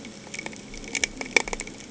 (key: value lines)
label: anthrophony, boat engine
recorder: HydroMoth